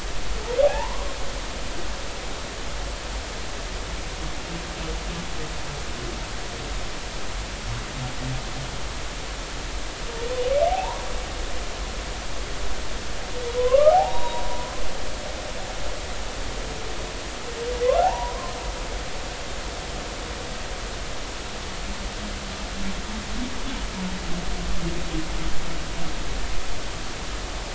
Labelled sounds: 0.6	1.1	humpback whale, 0.80 to 1.1 kHz
10.7	11.0	humpback whale, 0.80 to 1.2 kHz
13.6	14.8	humpback whale, 0.80 to 3.9 kHz
18.0	18.5	humpback whale, 0.80 to 1.1 kHz

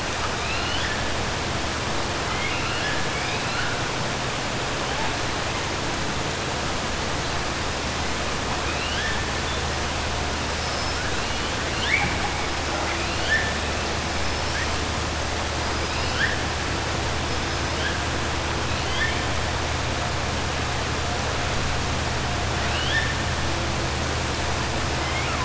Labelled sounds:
0.3	1.0	killer whale, 1.6 to 5.2 kHz
2.2	3.0	killer whale, 1.3 to 5.1 kHz
8.6	9.2	killer whale, 1.6 to 4.0 kHz
10.5	11.0	killer whale, 5.1 to 6.0 kHz
14.2	14.6	killer whale, 5.1 to 6.2 kHz
15.7	16.4	killer whale, 1.4 to 5.9 kHz
22.6	23.1	killer whale, 1.6 to 4.4 kHz
25.0	25.4	killer whale, 0.98 to 3.2 kHz

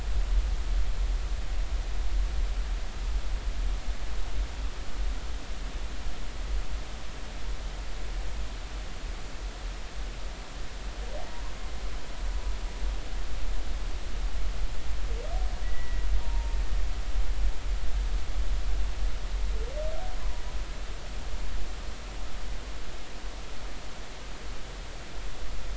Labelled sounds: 15.6	16.6	humpback whale, 0.83 to 2.0 kHz

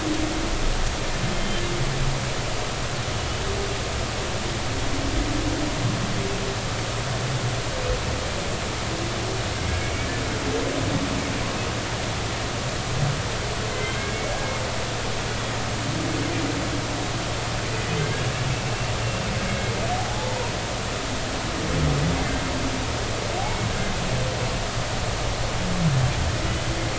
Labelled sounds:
9.8	10.1	humpback whale, 2.2 to 2.3 kHz
13.7	14.0	humpback whale, 2.0 to 3.2 kHz
20.0	20.4	humpback whale, 0.80 to 0.93 kHz
23.4	23.7	humpback whale, 2.1 to 2.3 kHz

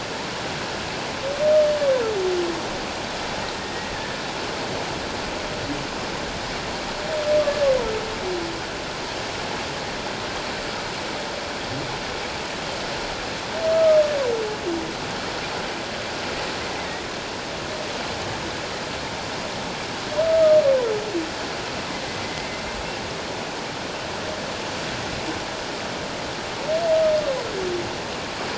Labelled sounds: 13.7	14.0	humpback whale, 1.2 to 1.3 kHz
16.7	17.0	humpback whale, 1.8 to 2.1 kHz
20.2	20.6	humpback whale, 1.2 to 1.3 kHz
22.2	22.6	humpback whale, 2.0 to 2.2 kHz

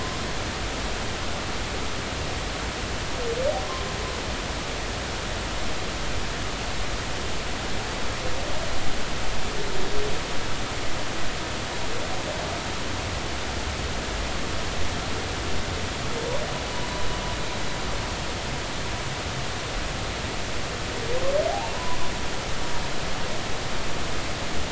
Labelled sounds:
21.7	22.0	humpback whale, 0.93 to 1.1 kHz

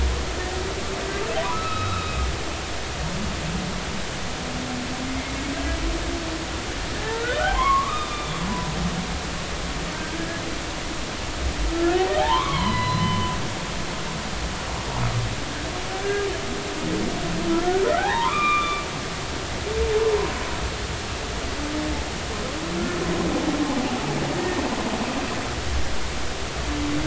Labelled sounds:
1.4	2.2	humpback whale, 0.93 to 4.0 kHz
7.0	8.5	humpback whale, 0.93 to 3.7 kHz
10.2	10.4	humpback whale, 1.6 to 1.7 kHz
11.7	13.3	humpback whale, 0.80 to 4.2 kHz
17.9	18.8	humpback whale, 0.80 to 2.6 kHz

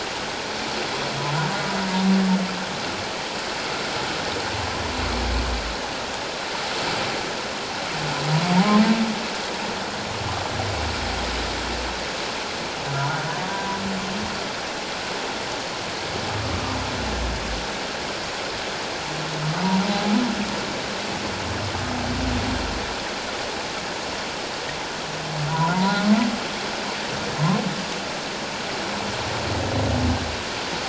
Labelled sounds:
8.5	8.8	humpback whale, 0.78 to 1.1 kHz
13.4	13.8	humpback whale, 0.91 to 1.0 kHz

